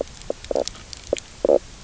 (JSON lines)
{"label": "biophony, knock croak", "recorder": "SoundTrap 300"}